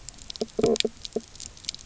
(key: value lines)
label: biophony, knock croak
recorder: SoundTrap 300